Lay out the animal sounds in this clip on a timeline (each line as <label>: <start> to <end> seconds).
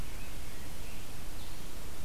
Scarlet Tanager (Piranga olivacea): 0.0 to 1.7 seconds